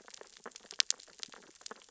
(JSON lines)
{"label": "biophony, sea urchins (Echinidae)", "recorder": "SoundTrap 600 or HydroMoth"}